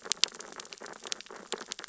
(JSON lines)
{"label": "biophony, sea urchins (Echinidae)", "recorder": "SoundTrap 600 or HydroMoth"}